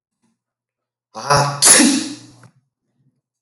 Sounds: Sneeze